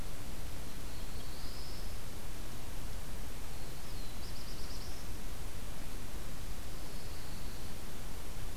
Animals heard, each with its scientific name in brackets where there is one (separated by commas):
Pine Warbler (Setophaga pinus), Black-throated Blue Warbler (Setophaga caerulescens)